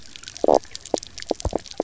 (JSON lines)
{"label": "biophony, knock croak", "recorder": "SoundTrap 300"}